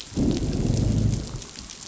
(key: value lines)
label: biophony, growl
recorder: SoundTrap 500